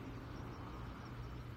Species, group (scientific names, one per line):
Ornebius kanetataki
Orthoptera